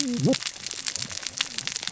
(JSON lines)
{"label": "biophony, cascading saw", "recorder": "SoundTrap 600 or HydroMoth"}